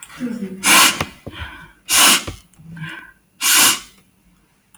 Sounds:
Sniff